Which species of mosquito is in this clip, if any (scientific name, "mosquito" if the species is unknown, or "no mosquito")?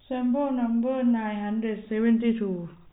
no mosquito